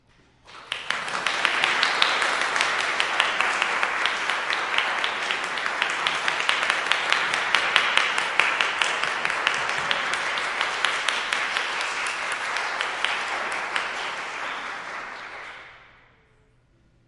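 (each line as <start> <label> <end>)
0.2 An audience claps loudly and rhythmically in a large indoor space, with the applause echoing and gradually fading away after a performance. 17.1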